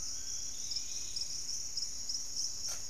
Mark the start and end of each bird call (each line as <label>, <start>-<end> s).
Undulated Tinamou (Crypturellus undulatus), 0.0-0.6 s
Fasciated Antshrike (Cymbilaimus lineatus), 0.0-0.7 s
Piratic Flycatcher (Legatus leucophaius), 0.0-0.9 s
Dusky-capped Greenlet (Pachysylvia hypoxantha), 0.0-2.9 s
Dusky-capped Flycatcher (Myiarchus tuberculifer), 0.6-1.4 s